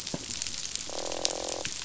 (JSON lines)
{"label": "biophony, croak", "recorder": "SoundTrap 500"}